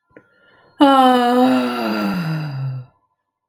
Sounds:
Sigh